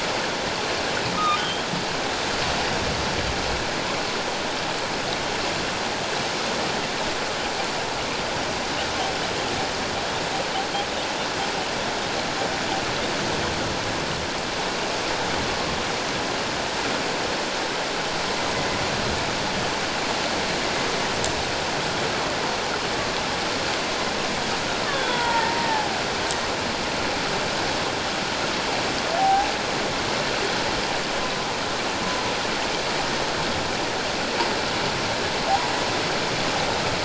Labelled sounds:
1.1	1.6	humpback whale, 1.2 to 3.3 kHz
24.9	26.0	killer whale, Bigg's (transient), 0.78 to 3.6 kHz
29.2	29.5	humpback whale, 0.78 to 0.91 kHz

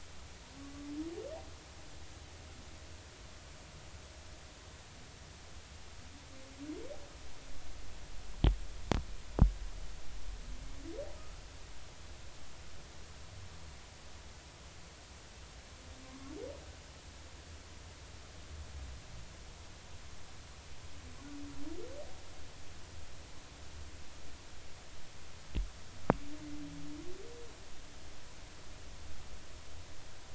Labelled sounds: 16.0	16.3	humpback whale, 0.99 to 1.2 kHz

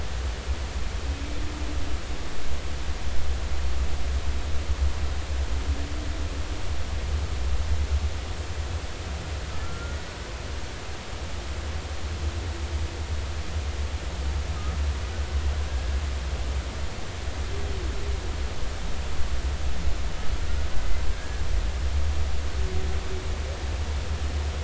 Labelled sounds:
9.6	10.0	humpback whale, 1.3 to 1.5 kHz
21.1	21.4	humpback whale, 1.6 to 1.7 kHz

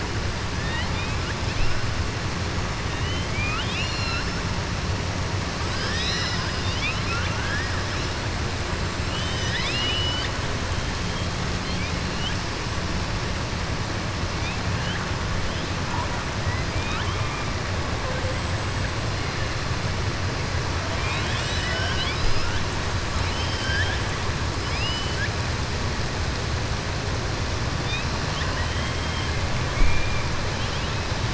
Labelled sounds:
0.5	1.3	killer whale, southern resident, 0.91 to 4.3 kHz
2.9	4.3	killer whale, southern resident, 1.3 to 7.1 kHz
5.6	7.7	killer whale, southern resident, 1.2 to 7.7 kHz
9.0	10.3	killer whale, southern resident, 1.6 to 7.6 kHz
16.7	17.4	killer whale, southern resident, 1.3 to 3.8 kHz
20.9	22.6	killer whale, southern resident, 0.67 to 7.6 kHz
23.2	24.0	killer whale, southern resident, 0.81 to 6.1 kHz
28.2	29.3	killer whale, southern resident, 1.0 to 4.3 kHz
29.7	30.2	killer whale, southern resident, 1.7 to 2.5 kHz

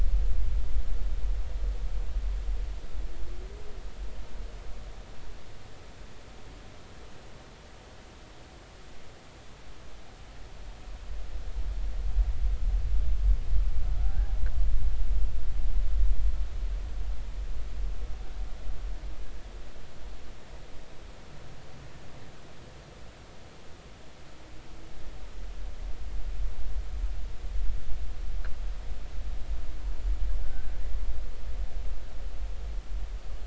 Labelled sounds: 14.0	14.4	killer whale, Bigg's (transient), 0.80 to 1.7 kHz
30.4	30.7	killer whale, Bigg's (transient), 1.5 to 1.7 kHz

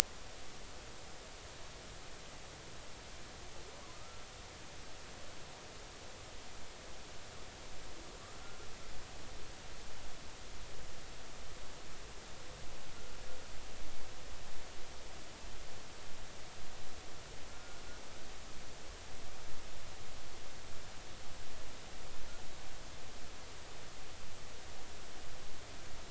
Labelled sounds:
3.9	4.2	humpback whale, 1.2 to 1.4 kHz
17.5	17.8	humpback whale, 1.3 to 1.5 kHz

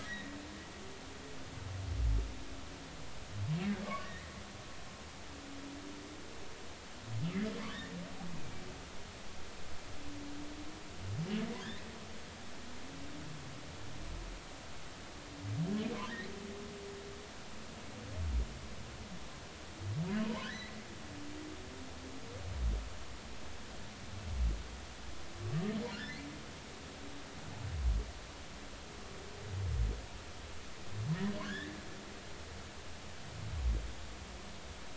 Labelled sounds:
0.0	0.3	humpback whale, 1.6 to 3.9 kHz
3.8	4.3	humpback whale, 1.0 to 2.1 kHz
7.6	7.8	humpback whale, 0.96 to 1.2 kHz
20.3	20.8	humpback whale, 0.86 to 2.1 kHz
25.9	26.3	humpback whale, 1.3 to 2.1 kHz
31.3	31.7	humpback whale, 1.4 to 3.2 kHz

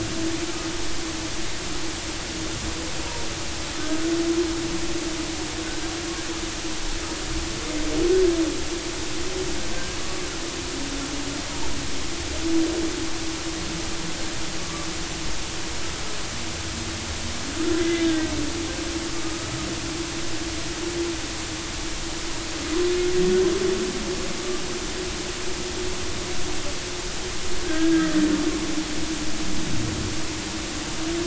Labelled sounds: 3.7	4.0	humpback whale, 1.2 to 1.3 kHz
10.0	10.3	humpback whale, 1.1 to 1.2 kHz
17.8	18.3	humpback whale, 1.5 to 3.7 kHz
19.2	19.5	humpback whale, 1.2 to 1.3 kHz
27.6	28.1	humpback whale, 1.5 to 1.7 kHz

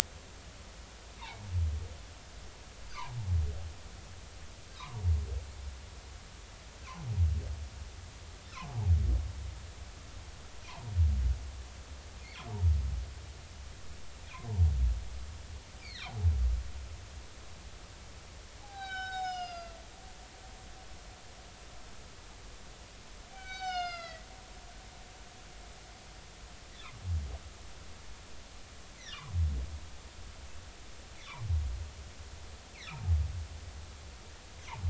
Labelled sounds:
4.8	5.0	humpback whale, 0.86 to 1.3 kHz
8.5	8.8	humpback whale, 0.80 to 1.4 kHz
15.8	16.1	humpback whale, 1.3 to 4.8 kHz
18.6	19.8	humpback whale, 0.80 to 6.8 kHz
23.3	24.2	humpback whale, 0.80 to 6.6 kHz
32.9	33.1	humpback whale, 0.80 to 1.4 kHz

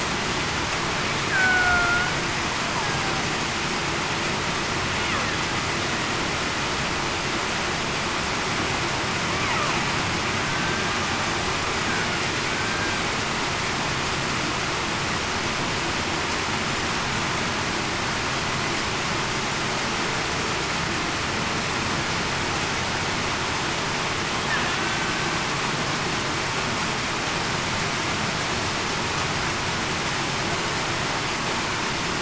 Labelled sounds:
1.3	2.1	killer whale, Bigg's (transient), 0.68 to 2.3 kHz
10.4	10.8	killer whale, Bigg's (transient), 1.5 to 1.6 kHz

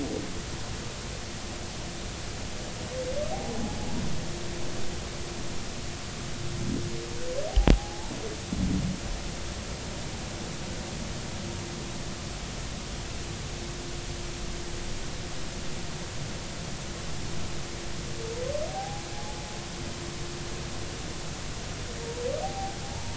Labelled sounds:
3.3	3.6	humpback whale, 0.80 to 0.86 kHz
7.5	8.1	humpback whale, 0.80 to 0.96 kHz
18.7	19.1	humpback whale, 0.80 to 0.86 kHz
22.4	23.1	humpback whale, 0.80 to 0.99 kHz

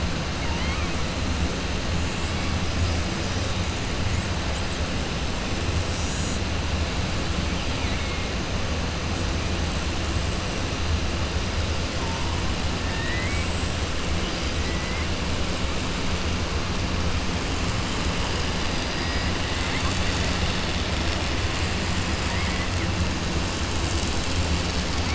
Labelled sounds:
0.4	0.9	killer whale, 1.1 to 4.2 kHz
7.7	8.2	killer whale, 1.9 to 3.9 kHz
12.8	13.5	killer whale, 0.90 to 2.7 kHz
22.2	22.6	killer whale, 1.1 to 2.3 kHz

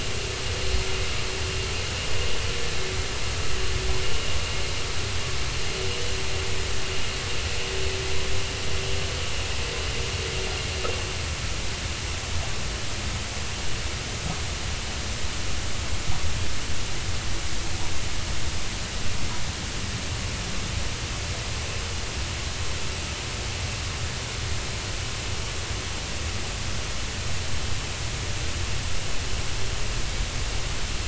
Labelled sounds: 5.9	6.1	vessel noise, 2.8 to 3.0 kHz

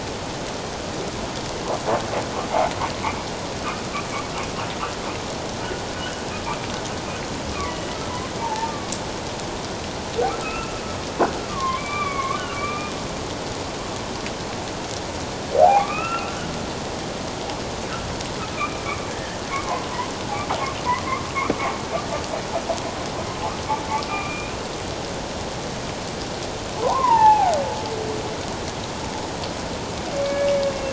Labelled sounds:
7.5	8.9	humpback whale, 0.81 to 2.5 kHz
10.3	10.8	humpback whale, 1.1 to 2.8 kHz
11.5	12.9	humpback whale, 0.97 to 3.6 kHz
15.5	16.4	humpback whale, 0.78 to 2.8 kHz
18.6	19.9	humpback whale, 0.78 to 2.5 kHz
24.1	24.5	humpback whale, 2.3 to 2.6 kHz
26.8	27.5	humpback whale, 0.78 to 2.9 kHz
30.2	30.9	humpback whale, 2.2 to 2.8 kHz

